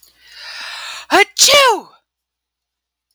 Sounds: Sneeze